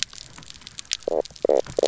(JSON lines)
{"label": "biophony, knock croak", "recorder": "SoundTrap 300"}